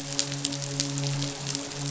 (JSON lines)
{"label": "biophony, midshipman", "recorder": "SoundTrap 500"}